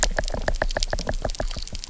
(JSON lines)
{"label": "biophony, knock", "recorder": "SoundTrap 300"}